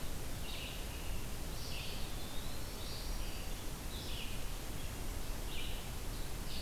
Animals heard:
Red-eyed Vireo (Vireo olivaceus), Black-throated Green Warbler (Setophaga virens), Eastern Wood-Pewee (Contopus virens)

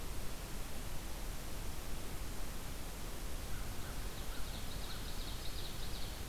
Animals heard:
American Crow (Corvus brachyrhynchos), Ovenbird (Seiurus aurocapilla)

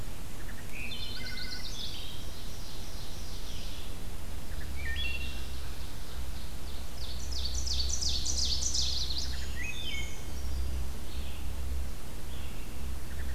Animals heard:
Black-and-white Warbler (Mniotilta varia), Ovenbird (Seiurus aurocapilla), Chestnut-sided Warbler (Setophaga pensylvanica), Brown Creeper (Certhia americana), Wood Thrush (Hylocichla mustelina), Red-eyed Vireo (Vireo olivaceus)

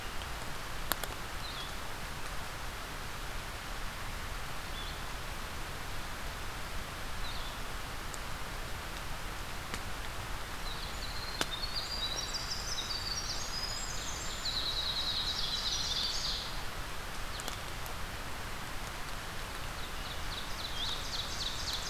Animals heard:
Ovenbird (Seiurus aurocapilla), Blue-headed Vireo (Vireo solitarius), Winter Wren (Troglodytes hiemalis)

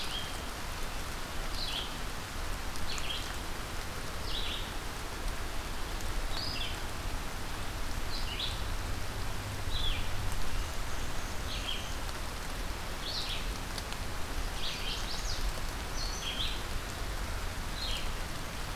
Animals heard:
Red-eyed Vireo (Vireo olivaceus), Chestnut-sided Warbler (Setophaga pensylvanica), Black-and-white Warbler (Mniotilta varia)

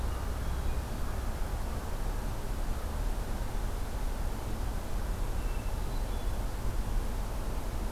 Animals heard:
Hermit Thrush (Catharus guttatus)

